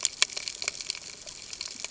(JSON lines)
{"label": "ambient", "recorder": "HydroMoth"}